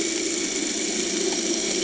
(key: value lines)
label: anthrophony, boat engine
recorder: HydroMoth